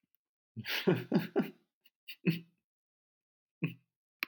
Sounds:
Laughter